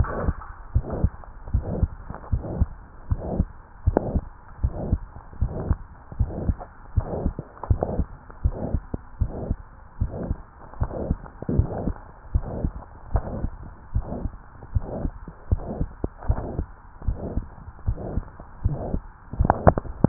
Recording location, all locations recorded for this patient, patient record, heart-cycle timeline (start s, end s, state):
tricuspid valve (TV)
aortic valve (AV)+pulmonary valve (PV)+tricuspid valve (TV)+mitral valve (MV)
#Age: Adolescent
#Sex: Female
#Height: 147.0 cm
#Weight: 36.1 kg
#Pregnancy status: False
#Murmur: Present
#Murmur locations: aortic valve (AV)+mitral valve (MV)+pulmonary valve (PV)+tricuspid valve (TV)
#Most audible location: pulmonary valve (PV)
#Systolic murmur timing: Mid-systolic
#Systolic murmur shape: Diamond
#Systolic murmur grading: III/VI or higher
#Systolic murmur pitch: High
#Systolic murmur quality: Harsh
#Diastolic murmur timing: nan
#Diastolic murmur shape: nan
#Diastolic murmur grading: nan
#Diastolic murmur pitch: nan
#Diastolic murmur quality: nan
#Outcome: Abnormal
#Campaign: 2015 screening campaign
0.00	0.14	S1
0.14	0.22	systole
0.22	0.36	S2
0.36	0.74	diastole
0.74	0.86	S1
0.86	0.94	systole
0.94	1.10	S2
1.10	1.50	diastole
1.50	1.66	S1
1.66	1.74	systole
1.74	1.90	S2
1.90	2.28	diastole
2.28	2.44	S1
2.44	2.54	systole
2.54	2.70	S2
2.70	3.08	diastole
3.08	3.22	S1
3.22	3.30	systole
3.30	3.46	S2
3.46	3.86	diastole
3.86	3.96	S1
3.96	4.06	systole
4.06	4.22	S2
4.22	4.60	diastole
4.60	4.76	S1
4.76	4.86	systole
4.86	5.00	S2
5.00	5.40	diastole
5.40	5.54	S1
5.54	5.64	systole
5.64	5.78	S2
5.78	6.16	diastole
6.16	6.32	S1
6.32	6.42	systole
6.42	6.56	S2
6.56	6.94	diastole
6.94	7.08	S1
7.08	7.18	systole
7.18	7.32	S2
7.32	7.70	diastole
7.70	7.82	S1
7.82	7.90	systole
7.90	8.06	S2
8.06	8.44	diastole
8.44	8.60	S1
8.60	8.72	systole
8.72	8.82	S2
8.82	9.20	diastole
9.20	9.32	S1
9.32	9.44	systole
9.44	9.58	S2
9.58	10.00	diastole
10.00	10.14	S1
10.14	10.24	systole
10.24	10.38	S2
10.38	10.80	diastole
10.80	10.90	S1
10.90	11.06	systole
11.06	11.20	S2
11.20	11.52	diastole
11.52	11.70	S1
11.70	11.80	systole
11.80	11.94	S2
11.94	12.32	diastole
12.32	12.46	S1
12.46	12.56	systole
12.56	12.72	S2
12.72	13.12	diastole
13.12	13.26	S1
13.26	13.38	systole
13.38	13.52	S2
13.52	13.94	diastole
13.94	14.06	S1
14.06	14.18	systole
14.18	14.32	S2
14.32	14.72	diastole
14.72	14.88	S1
14.88	14.96	systole
14.96	15.12	S2
15.12	15.52	diastole
15.52	15.68	S1
15.68	15.78	systole
15.78	15.88	S2
15.88	16.28	diastole
16.28	16.46	S1
16.46	16.56	systole
16.56	16.66	S2
16.66	17.06	diastole
17.06	17.20	S1
17.20	17.34	systole
17.34	17.46	S2
17.46	17.86	diastole
17.86	18.00	S1
18.00	18.12	systole
18.12	18.24	S2
18.24	18.66	diastole
18.66	18.82	S1
18.82	18.90	systole
18.90	19.02	S2
19.02	19.34	diastole